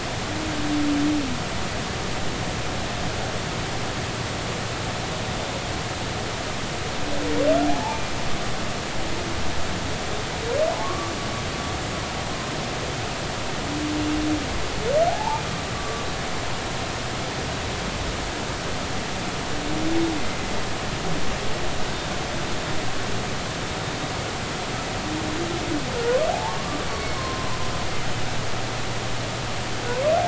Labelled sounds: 7.6	8.0	humpback whale, 0.80 to 0.99 kHz
10.7	11.1	humpback whale, 0.96 to 1.2 kHz
15.1	15.4	humpback whale, 0.80 to 1.0 kHz
15.7	16.0	humpback whale, 1.1 to 1.2 kHz
26.3	27.6	humpback whale, 0.80 to 4.5 kHz

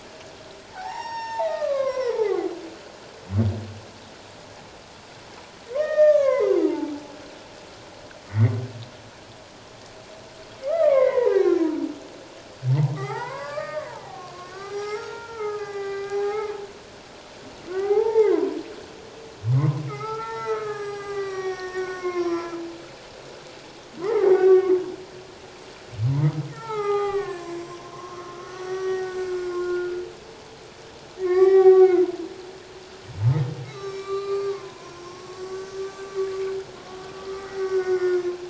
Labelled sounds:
0.7	2.5	humpback whale, 0.78 to 7.4 kHz
5.7	6.9	humpback whale, 0.81 to 6.7 kHz
8.3	8.5	humpback whale, 1.8 to 2.2 kHz
10.7	11.6	humpback whale, 0.81 to 2.5 kHz
12.9	16.5	humpback whale, 0.78 to 6.0 kHz
17.7	18.6	humpback whale, 0.78 to 2.2 kHz
19.5	22.6	humpback whale, 0.78 to 7.8 kHz
24.0	24.7	humpback whale, 0.78 to 2.0 kHz
26.5	28.2	humpback whale, 0.78 to 7.5 kHz
28.4	29.9	humpback whale, 0.94 to 6.1 kHz
31.2	32.0	humpback whale, 0.78 to 3.9 kHz
33.6	35.7	humpback whale, 0.94 to 6.3 kHz
37.4	38.3	humpback whale, 1.1 to 2.2 kHz

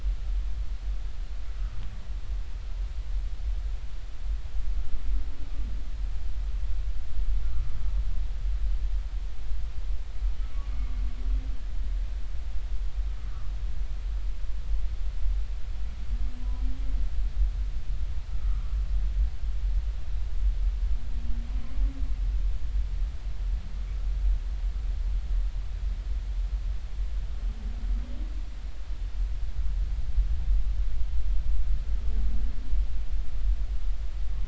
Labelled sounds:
7.4	7.7	humpback whale, 1.1 to 1.4 kHz
10.7	11.0	humpback whale, 1.1 to 1.2 kHz
18.3	18.7	humpback whale, 1.1 to 1.4 kHz

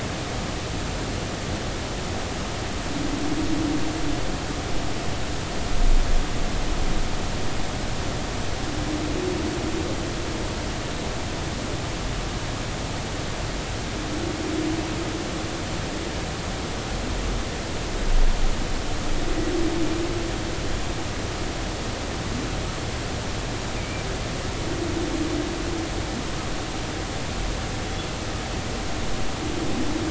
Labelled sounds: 23.8	24.1	humpback whale, 2.2 to 2.5 kHz

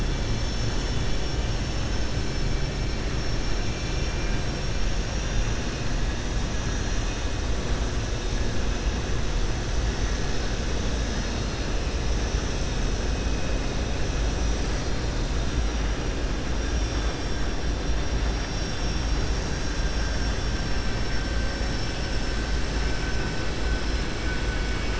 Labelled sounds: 21.4	21.9	vessel noise, 4.6 to 5.5 kHz

